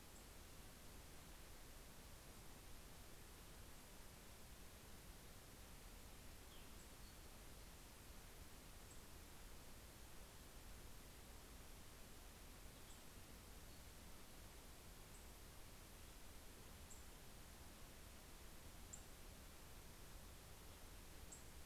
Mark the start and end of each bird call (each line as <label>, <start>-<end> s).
Cassin's Vireo (Vireo cassinii), 6.3-7.9 s
Cassin's Vireo (Vireo cassinii), 12.4-13.8 s
Nashville Warbler (Leiothlypis ruficapilla), 12.8-21.7 s